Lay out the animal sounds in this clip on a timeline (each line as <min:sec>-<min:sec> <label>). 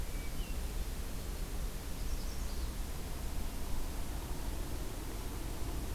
0:00.0-0:00.8 Hermit Thrush (Catharus guttatus)
0:02.0-0:02.7 Magnolia Warbler (Setophaga magnolia)